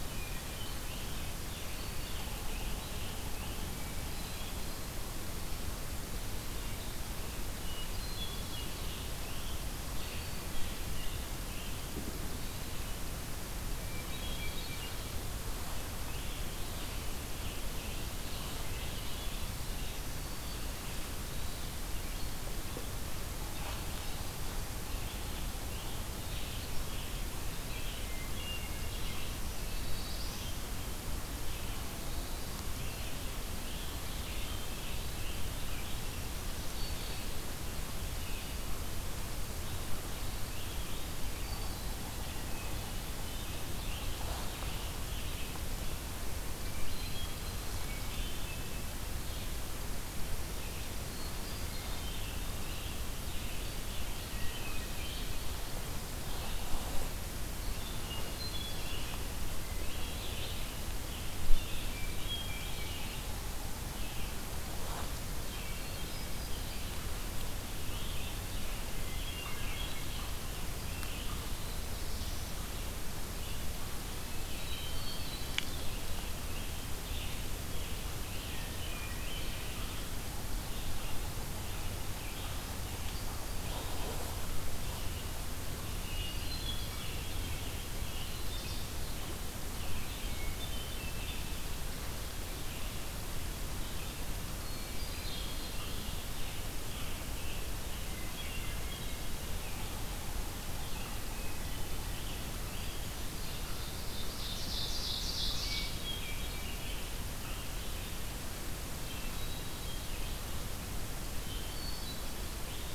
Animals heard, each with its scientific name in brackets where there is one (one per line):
Black-throated Blue Warbler (Setophaga caerulescens)
Red-eyed Vireo (Vireo olivaceus)
Scarlet Tanager (Piranga olivacea)
Hermit Thrush (Catharus guttatus)
Ovenbird (Seiurus aurocapilla)